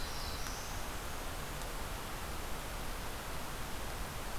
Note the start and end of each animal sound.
[0.00, 0.78] Black-throated Blue Warbler (Setophaga caerulescens)
[0.48, 1.60] Blackburnian Warbler (Setophaga fusca)

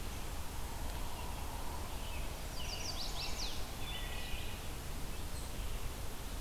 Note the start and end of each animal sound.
[1.58, 4.10] American Robin (Turdus migratorius)
[2.25, 3.79] Chestnut-sided Warbler (Setophaga pensylvanica)
[3.69, 5.09] Wood Thrush (Hylocichla mustelina)

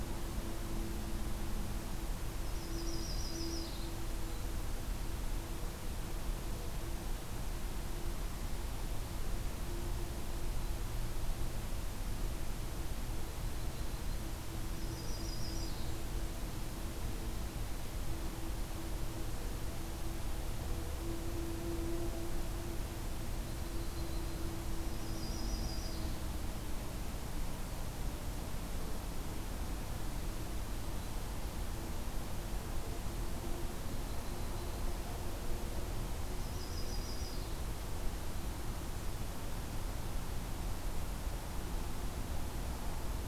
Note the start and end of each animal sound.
[2.31, 4.00] Yellow-rumped Warbler (Setophaga coronata)
[13.28, 14.23] Yellow-rumped Warbler (Setophaga coronata)
[14.66, 15.97] Yellow-rumped Warbler (Setophaga coronata)
[14.81, 16.54] Golden-crowned Kinglet (Regulus satrapa)
[23.36, 26.16] Yellow-rumped Warbler (Setophaga coronata)
[33.68, 34.90] Yellow-rumped Warbler (Setophaga coronata)
[36.25, 37.58] Yellow-rumped Warbler (Setophaga coronata)

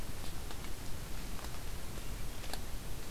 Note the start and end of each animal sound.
[1.53, 2.61] Swainson's Thrush (Catharus ustulatus)

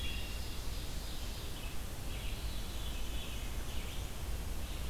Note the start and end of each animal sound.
[0.00, 0.52] Wood Thrush (Hylocichla mustelina)
[0.00, 1.80] Ovenbird (Seiurus aurocapilla)
[0.00, 4.89] Red-eyed Vireo (Vireo olivaceus)
[1.89, 3.55] Veery (Catharus fuscescens)
[2.19, 4.21] Black-and-white Warbler (Mniotilta varia)

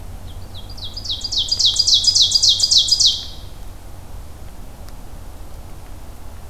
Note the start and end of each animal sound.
[0.13, 3.48] Ovenbird (Seiurus aurocapilla)

